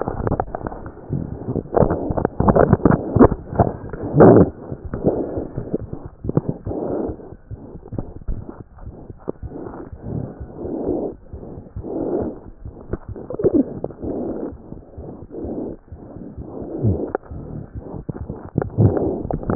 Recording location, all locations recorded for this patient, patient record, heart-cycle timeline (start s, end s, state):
pulmonary valve (PV)
aortic valve (AV)+pulmonary valve (PV)+tricuspid valve (TV)+mitral valve (MV)
#Age: Infant
#Sex: Female
#Height: 71.0 cm
#Weight: 8.6 kg
#Pregnancy status: False
#Murmur: Present
#Murmur locations: aortic valve (AV)+mitral valve (MV)+pulmonary valve (PV)+tricuspid valve (TV)
#Most audible location: tricuspid valve (TV)
#Systolic murmur timing: Holosystolic
#Systolic murmur shape: Plateau
#Systolic murmur grading: III/VI or higher
#Systolic murmur pitch: High
#Systolic murmur quality: Harsh
#Diastolic murmur timing: nan
#Diastolic murmur shape: nan
#Diastolic murmur grading: nan
#Diastolic murmur pitch: nan
#Diastolic murmur quality: nan
#Outcome: Abnormal
#Campaign: 2015 screening campaign
0.00	7.49	unannotated
7.49	7.57	S1
7.57	7.72	systole
7.72	7.81	S2
7.81	7.91	diastole
7.91	7.99	S1
7.99	8.15	systole
8.15	8.24	S2
8.24	8.36	diastole
8.36	8.43	S1
8.43	8.57	systole
8.57	8.64	S2
8.64	8.83	diastole
8.83	8.93	S1
8.93	9.08	systole
9.08	9.16	S2
9.16	9.40	diastole
9.40	9.48	S1
9.48	9.64	systole
9.64	9.70	S2
9.70	9.90	diastole
9.90	10.01	S1
10.01	19.55	unannotated